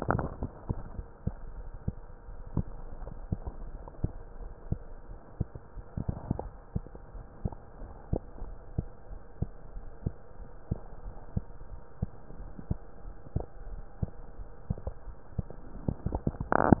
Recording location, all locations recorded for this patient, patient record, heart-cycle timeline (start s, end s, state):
mitral valve (MV)
aortic valve (AV)+pulmonary valve (PV)+tricuspid valve (TV)+mitral valve (MV)
#Age: Child
#Sex: Male
#Height: 122.0 cm
#Weight: 23.8 kg
#Pregnancy status: False
#Murmur: Absent
#Murmur locations: nan
#Most audible location: nan
#Systolic murmur timing: nan
#Systolic murmur shape: nan
#Systolic murmur grading: nan
#Systolic murmur pitch: nan
#Systolic murmur quality: nan
#Diastolic murmur timing: nan
#Diastolic murmur shape: nan
#Diastolic murmur grading: nan
#Diastolic murmur pitch: nan
#Diastolic murmur quality: nan
#Outcome: Normal
#Campaign: 2015 screening campaign
0.00	4.31	unannotated
4.31	4.38	diastole
4.38	4.50	S1
4.50	4.67	systole
4.67	4.78	S2
4.78	5.10	diastole
5.10	5.18	S1
5.18	5.36	systole
5.36	5.50	S2
5.50	5.76	diastole
5.76	5.84	S1
5.84	6.06	systole
6.06	6.20	S2
6.20	6.42	diastole
6.42	6.54	S1
6.54	6.72	systole
6.72	6.86	S2
6.86	7.14	diastole
7.14	7.24	S1
7.24	7.42	systole
7.42	7.54	S2
7.54	7.80	diastole
7.80	7.92	S1
7.92	8.08	systole
8.08	8.20	S2
8.20	8.42	diastole
8.42	8.56	S1
8.56	8.74	systole
8.74	8.86	S2
8.86	9.10	diastole
9.10	9.20	S1
9.20	9.38	systole
9.38	9.50	S2
9.50	9.74	diastole
9.74	9.86	S1
9.86	10.02	systole
10.02	10.14	S2
10.14	10.40	diastole
10.40	10.48	S1
10.48	10.70	systole
10.70	10.82	S2
10.82	11.04	diastole
11.04	11.14	S1
11.14	11.32	systole
11.32	11.46	S2
11.46	11.72	diastole
11.72	11.82	S1
11.82	11.98	systole
11.98	12.12	S2
12.12	12.38	diastole
12.38	12.50	S1
12.50	12.66	systole
12.66	12.80	S2
12.80	13.04	diastole
13.04	13.14	S1
13.14	13.32	systole
13.32	13.46	S2
13.46	13.68	diastole
13.68	13.84	S1
13.84	13.98	systole
13.98	14.12	S2
14.12	14.38	diastole
14.38	14.48	S1
14.48	14.66	systole
14.66	14.82	S2
14.82	15.08	diastole
15.08	15.16	S1
15.16	15.34	systole
15.34	15.46	S2
15.46	15.74	diastole
15.74	16.80	unannotated